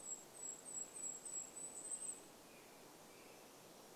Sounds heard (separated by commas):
American Robin song, Golden-crowned Kinglet song